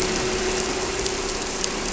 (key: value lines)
label: anthrophony, boat engine
recorder: SoundTrap 300